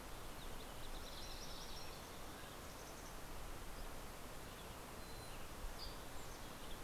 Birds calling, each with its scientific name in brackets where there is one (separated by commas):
Mountain Chickadee (Poecile gambeli), Dusky Flycatcher (Empidonax oberholseri), Mountain Quail (Oreortyx pictus)